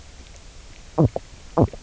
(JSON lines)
{"label": "biophony, knock croak", "recorder": "SoundTrap 300"}